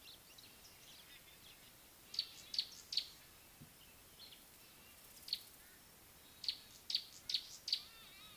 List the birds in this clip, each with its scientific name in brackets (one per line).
Gray-backed Camaroptera (Camaroptera brevicaudata)